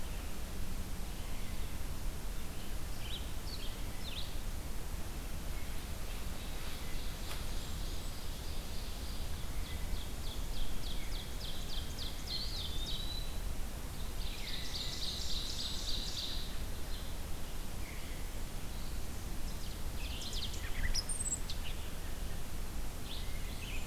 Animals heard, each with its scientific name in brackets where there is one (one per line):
Red-eyed Vireo (Vireo olivaceus)
Ovenbird (Seiurus aurocapilla)
Eastern Wood-Pewee (Contopus virens)
American Robin (Turdus migratorius)
Blackburnian Warbler (Setophaga fusca)
unidentified call